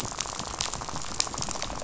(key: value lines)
label: biophony, rattle
recorder: SoundTrap 500